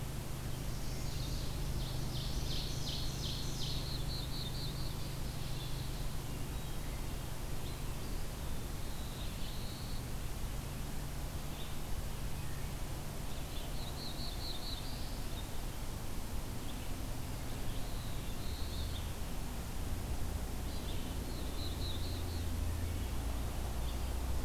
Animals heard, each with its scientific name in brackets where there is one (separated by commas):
Red-eyed Vireo (Vireo olivaceus), Ovenbird (Seiurus aurocapilla), Black-throated Blue Warbler (Setophaga caerulescens), Hermit Thrush (Catharus guttatus), Wood Thrush (Hylocichla mustelina), Chestnut-sided Warbler (Setophaga pensylvanica)